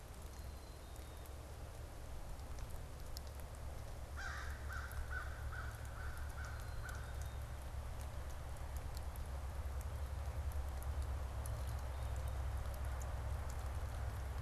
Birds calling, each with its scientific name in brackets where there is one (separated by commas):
Black-capped Chickadee (Poecile atricapillus), American Crow (Corvus brachyrhynchos)